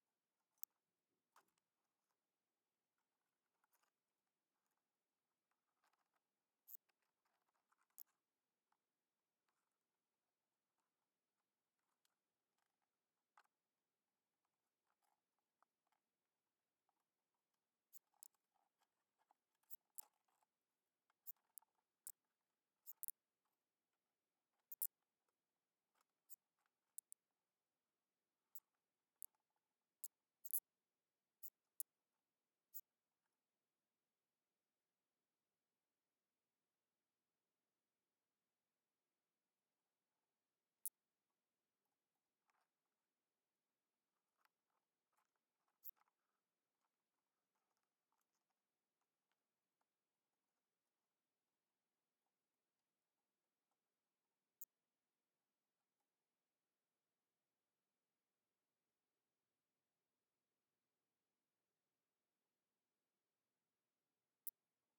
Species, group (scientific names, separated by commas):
Sorapagus catalaunicus, Orthoptera